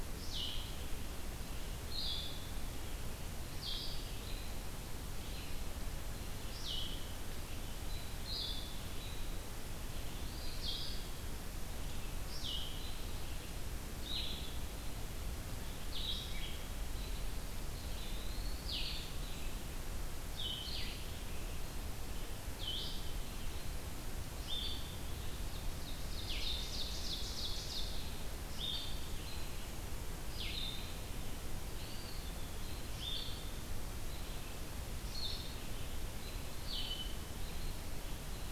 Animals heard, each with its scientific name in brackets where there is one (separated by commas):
Ovenbird (Seiurus aurocapilla), Blue-headed Vireo (Vireo solitarius), Eastern Wood-Pewee (Contopus virens)